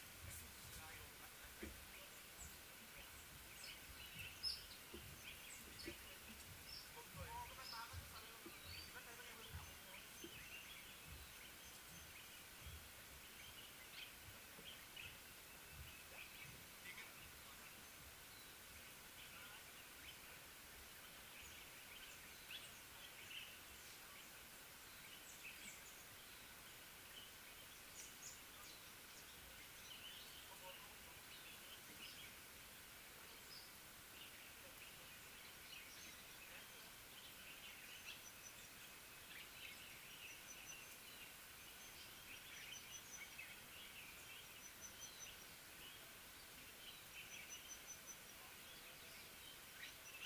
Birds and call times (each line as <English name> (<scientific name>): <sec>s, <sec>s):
Little Bee-eater (Merops pusillus): 4.5s
Speckled Mousebird (Colius striatus): 28.0s